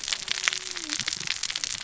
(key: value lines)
label: biophony, cascading saw
recorder: SoundTrap 600 or HydroMoth